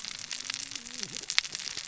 {"label": "biophony, cascading saw", "recorder": "SoundTrap 600 or HydroMoth"}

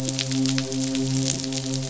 {"label": "biophony, midshipman", "recorder": "SoundTrap 500"}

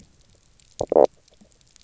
{"label": "biophony, knock croak", "recorder": "SoundTrap 300"}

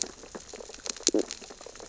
{"label": "biophony, sea urchins (Echinidae)", "recorder": "SoundTrap 600 or HydroMoth"}
{"label": "biophony, stridulation", "recorder": "SoundTrap 600 or HydroMoth"}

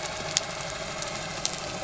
{"label": "anthrophony, boat engine", "recorder": "SoundTrap 300"}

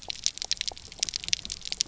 {"label": "biophony, pulse", "recorder": "SoundTrap 300"}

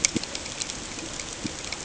{"label": "ambient", "recorder": "HydroMoth"}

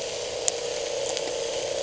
{"label": "anthrophony, boat engine", "recorder": "HydroMoth"}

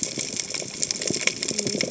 {"label": "biophony, cascading saw", "recorder": "HydroMoth"}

